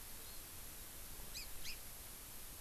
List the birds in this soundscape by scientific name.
Haemorhous mexicanus